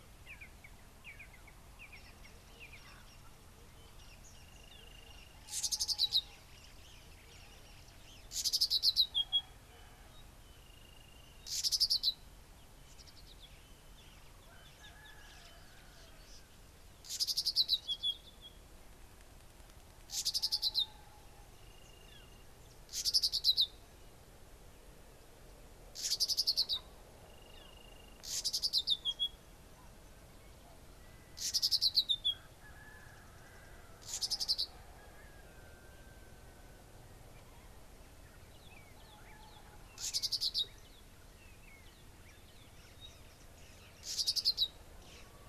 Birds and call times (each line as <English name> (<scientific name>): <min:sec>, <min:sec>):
Red-and-yellow Barbet (Trachyphonus erythrocephalus): 0:01.1
Brubru (Nilaus afer): 0:04.8, 0:11.0, 0:22.1, 0:27.8
Red-backed Scrub-Robin (Cercotrichas leucophrys): 0:06.0, 0:08.7, 0:11.9, 0:17.7, 0:20.5, 0:23.2, 0:28.6, 0:34.4, 0:44.5